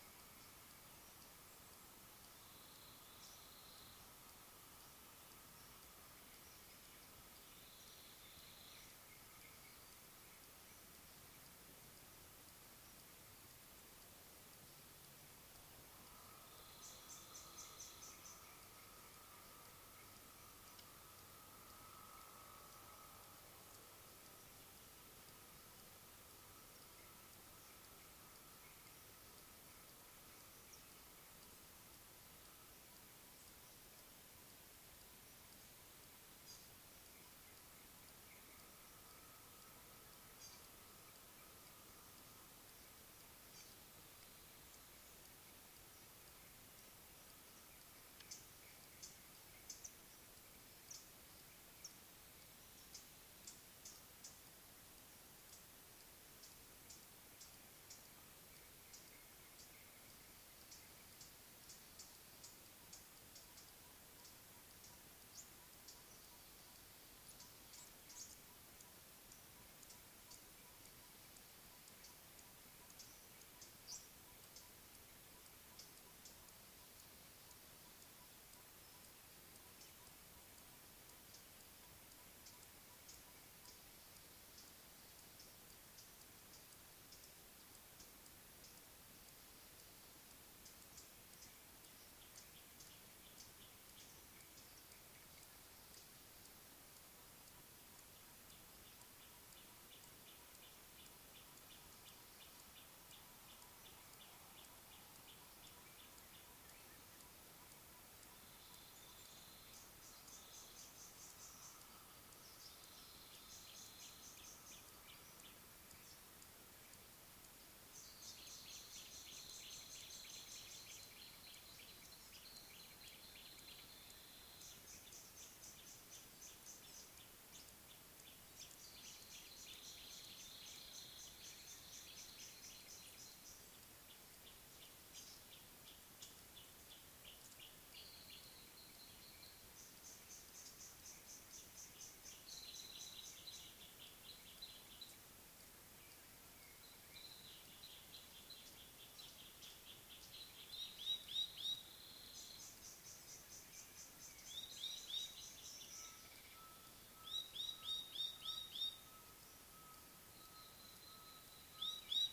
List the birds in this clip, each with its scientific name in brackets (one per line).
Chestnut-throated Apalis (Apalis porphyrolaema)
Black-collared Apalis (Oreolais pulcher)
Gray Apalis (Apalis cinerea)
Northern Double-collared Sunbird (Cinnyris reichenowi)